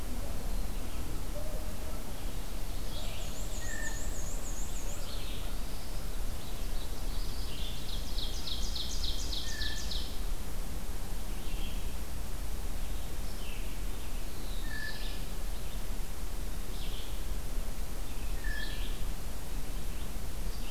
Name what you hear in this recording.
Red-eyed Vireo, Black-and-white Warbler, Blue Jay, Black-throated Blue Warbler, Ovenbird